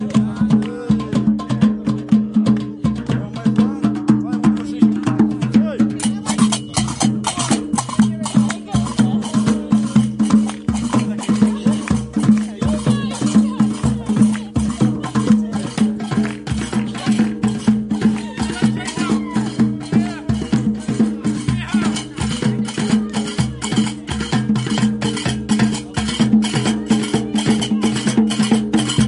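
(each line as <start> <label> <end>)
0.0 Rhythmic drums and shakers are being played loudly outdoors. 29.1
0.0 Several people are talking at a moderate volume. 29.1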